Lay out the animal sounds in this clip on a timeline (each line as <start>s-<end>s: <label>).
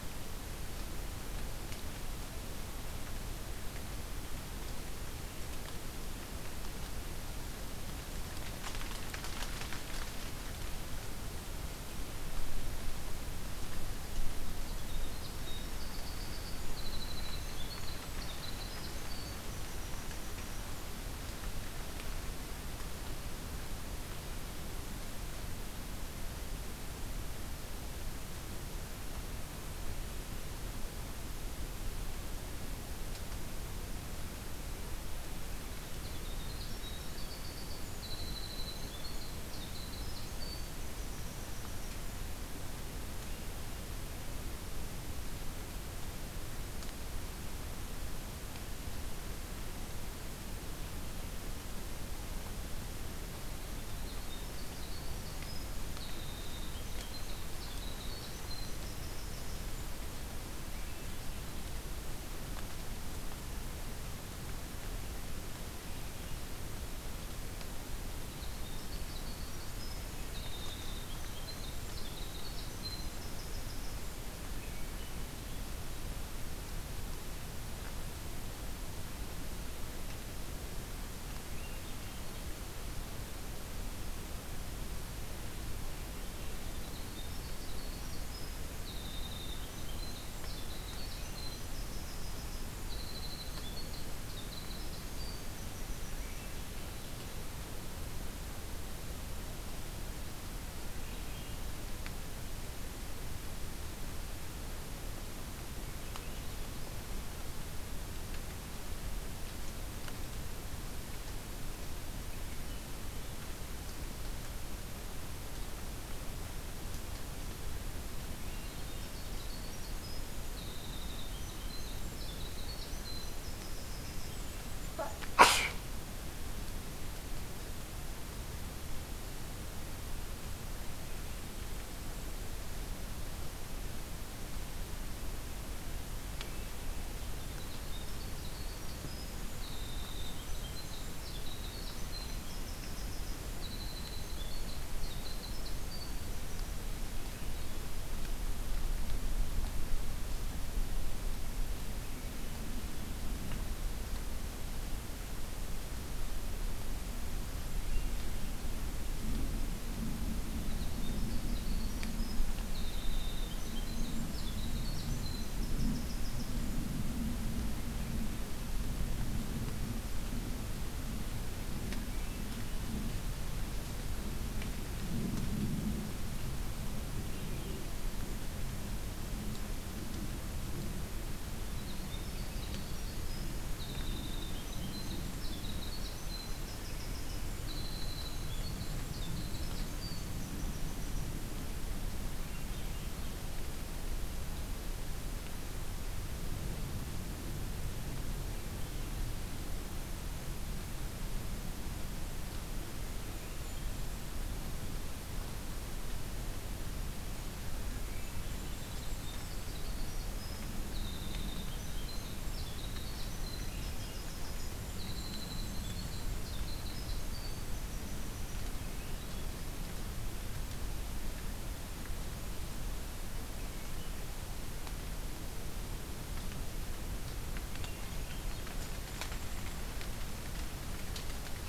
14.3s-20.7s: Winter Wren (Troglodytes hiemalis)
35.9s-42.0s: Black-throated Blue Warbler (Setophaga caerulescens)
53.9s-59.9s: Winter Wren (Troglodytes hiemalis)
68.2s-74.2s: Winter Wren (Troglodytes hiemalis)
86.6s-96.7s: Winter Wren (Troglodytes hiemalis)
118.3s-125.2s: Winter Wren (Troglodytes hiemalis)
137.4s-146.5s: Winter Wren (Troglodytes hiemalis)
160.4s-166.9s: Winter Wren (Troglodytes hiemalis)
181.7s-191.7s: Winter Wren (Troglodytes hiemalis)
188.0s-190.3s: Golden-crowned Kinglet (Regulus satrapa)
192.2s-193.5s: Swainson's Thrush (Catharus ustulatus)
203.1s-204.5s: Golden-crowned Kinglet (Regulus satrapa)
207.7s-209.8s: Golden-crowned Kinglet (Regulus satrapa)
208.2s-218.8s: Winter Wren (Troglodytes hiemalis)
214.2s-216.6s: Golden-crowned Kinglet (Regulus satrapa)
218.3s-219.7s: Swainson's Thrush (Catharus ustulatus)
227.5s-228.8s: Swainson's Thrush (Catharus ustulatus)
227.6s-229.9s: Golden-crowned Kinglet (Regulus satrapa)